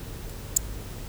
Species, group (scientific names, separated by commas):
Eupholidoptera schmidti, Orthoptera